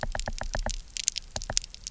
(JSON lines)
{"label": "biophony, knock", "recorder": "SoundTrap 300"}